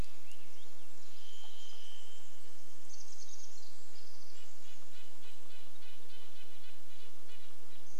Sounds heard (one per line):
insect buzz
Varied Thrush song
Red-breasted Nuthatch song
Pacific Wren song
Chestnut-backed Chickadee call
Swainson's Thrush song